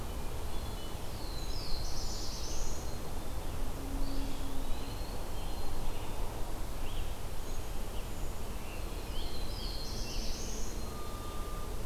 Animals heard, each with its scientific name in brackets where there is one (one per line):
Black-throated Blue Warbler (Setophaga caerulescens)
Eastern Wood-Pewee (Contopus virens)
Scarlet Tanager (Piranga olivacea)
Black-capped Chickadee (Poecile atricapillus)